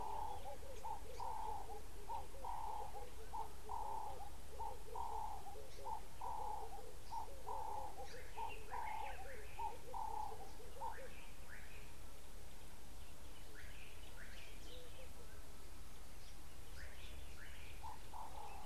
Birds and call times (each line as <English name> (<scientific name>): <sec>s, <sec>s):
Ring-necked Dove (Streptopelia capicola): 1.4s
Laughing Dove (Streptopelia senegalensis): 14.8s